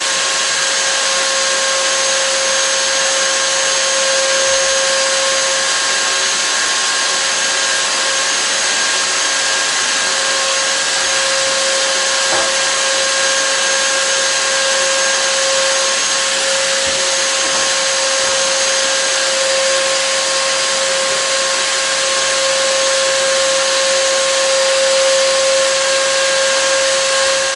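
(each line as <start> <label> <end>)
0.0 A vacuum cleaner operates uniformly. 27.5
12.1 Large debris being sucked into a vacuum cleaner. 12.7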